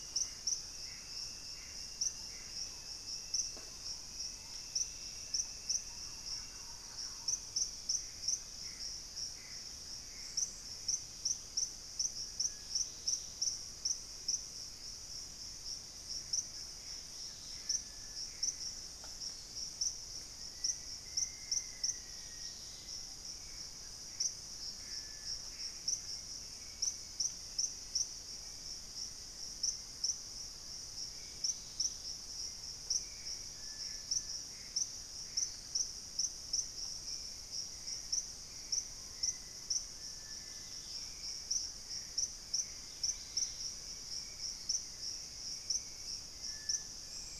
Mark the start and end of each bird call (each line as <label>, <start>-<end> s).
Gray Antbird (Cercomacra cinerascens), 0.0-2.9 s
Purple-throated Fruitcrow (Querula purpurata), 2.1-4.8 s
Thrush-like Wren (Campylorhynchus turdinus), 5.3-7.5 s
Hauxwell's Thrush (Turdus hauxwelli), 6.8-47.4 s
Gray Antbird (Cercomacra cinerascens), 7.9-11.1 s
Dusky-capped Greenlet (Pachysylvia hypoxantha), 10.9-17.9 s
Gray Antbird (Cercomacra cinerascens), 16.4-18.9 s
Black-faced Antthrush (Formicarius analis), 20.3-22.7 s
Dusky-capped Greenlet (Pachysylvia hypoxantha), 22.0-23.1 s
Gray Antbird (Cercomacra cinerascens), 23.7-26.2 s
Black-faced Antthrush (Formicarius analis), 25.7-28.1 s
Black-faced Antthrush (Formicarius analis), 28.4-29.9 s
Dusky-capped Greenlet (Pachysylvia hypoxantha), 31.2-32.3 s
Gray Antbird (Cercomacra cinerascens), 32.5-35.8 s
Screaming Piha (Lipaugus vociferans), 38.9-39.5 s
Dusky-capped Greenlet (Pachysylvia hypoxantha), 40.4-47.4 s